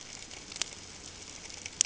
{"label": "ambient", "recorder": "HydroMoth"}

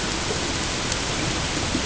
{"label": "ambient", "recorder": "HydroMoth"}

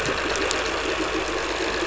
{"label": "anthrophony, boat engine", "recorder": "SoundTrap 500"}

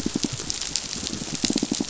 {"label": "biophony, pulse", "recorder": "SoundTrap 500"}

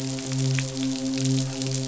{"label": "biophony, midshipman", "recorder": "SoundTrap 500"}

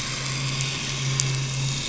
{"label": "anthrophony, boat engine", "recorder": "SoundTrap 500"}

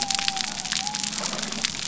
{"label": "biophony", "recorder": "SoundTrap 300"}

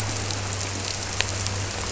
{"label": "anthrophony, boat engine", "recorder": "SoundTrap 300"}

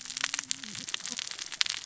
{"label": "biophony, cascading saw", "recorder": "SoundTrap 600 or HydroMoth"}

